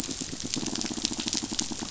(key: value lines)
label: biophony, pulse
recorder: SoundTrap 500